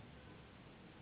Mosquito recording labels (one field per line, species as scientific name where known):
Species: Anopheles gambiae s.s.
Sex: female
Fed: unfed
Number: one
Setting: insect culture